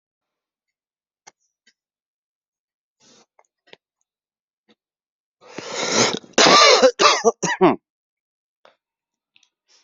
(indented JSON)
{
  "expert_labels": [
    {
      "quality": "good",
      "cough_type": "dry",
      "dyspnea": false,
      "wheezing": false,
      "stridor": false,
      "choking": false,
      "congestion": true,
      "nothing": false,
      "diagnosis": "upper respiratory tract infection",
      "severity": "pseudocough/healthy cough"
    }
  ],
  "gender": "male",
  "respiratory_condition": true,
  "fever_muscle_pain": false,
  "status": "symptomatic"
}